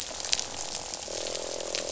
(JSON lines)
{"label": "biophony, croak", "recorder": "SoundTrap 500"}